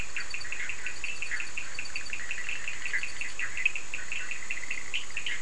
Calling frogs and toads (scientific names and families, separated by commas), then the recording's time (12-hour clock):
Boana bischoffi (Hylidae), Sphaenorhynchus surdus (Hylidae)
11:30pm